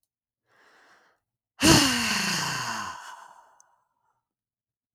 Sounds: Sigh